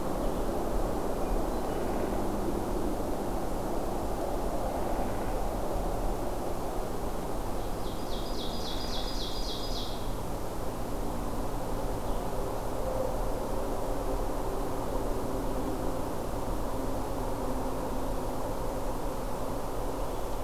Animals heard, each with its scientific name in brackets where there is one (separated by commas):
Blue-headed Vireo (Vireo solitarius), Ovenbird (Seiurus aurocapilla), Hermit Thrush (Catharus guttatus)